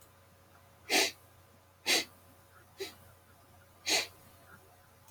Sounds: Sniff